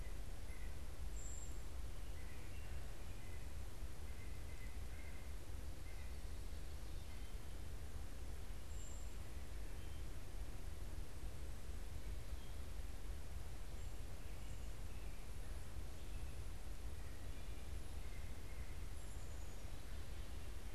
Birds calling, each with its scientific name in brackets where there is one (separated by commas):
White-breasted Nuthatch (Sitta carolinensis), Black-capped Chickadee (Poecile atricapillus), American Robin (Turdus migratorius), Brown Creeper (Certhia americana)